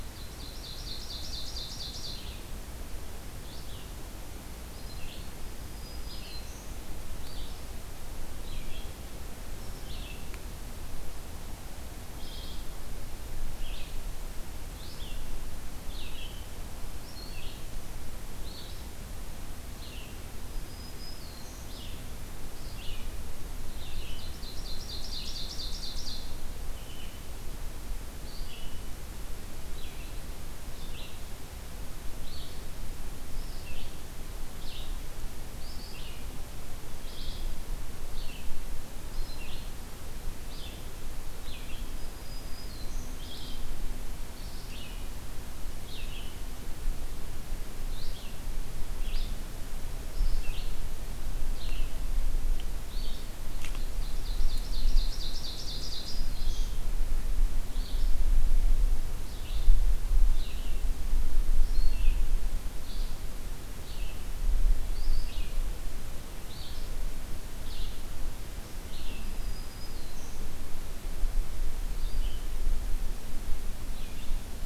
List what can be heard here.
Ovenbird, Red-eyed Vireo, Black-throated Green Warbler